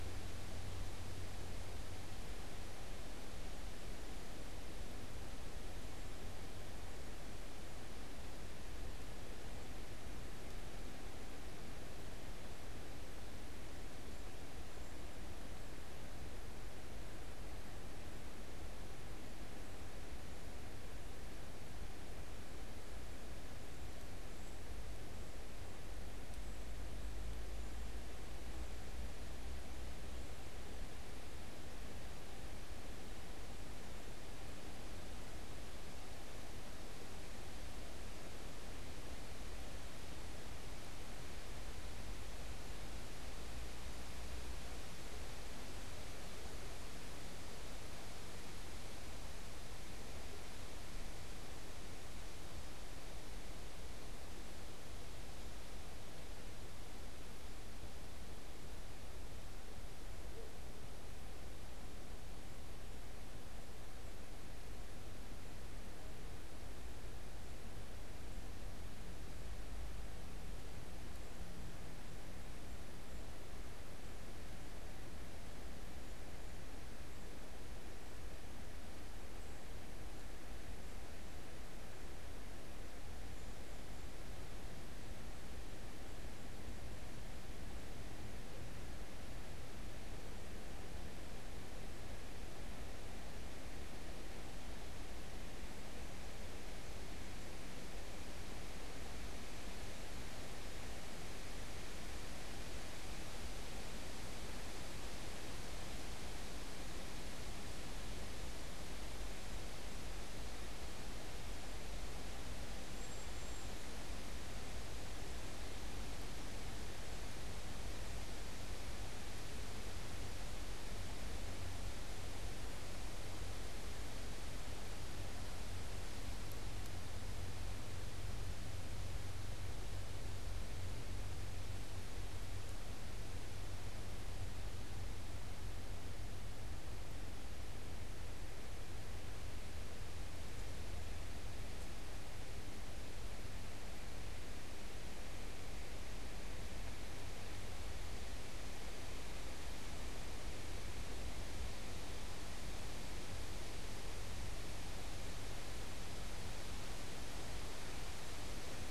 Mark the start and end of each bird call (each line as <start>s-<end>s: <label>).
112.5s-114.2s: Cedar Waxwing (Bombycilla cedrorum)